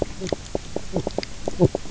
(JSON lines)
{"label": "biophony, knock croak", "recorder": "SoundTrap 300"}